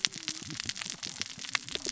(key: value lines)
label: biophony, cascading saw
recorder: SoundTrap 600 or HydroMoth